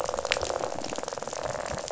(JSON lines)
{"label": "biophony, rattle", "recorder": "SoundTrap 500"}